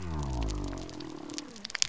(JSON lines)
{"label": "biophony", "recorder": "SoundTrap 300"}